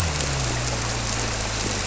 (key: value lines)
label: biophony
recorder: SoundTrap 300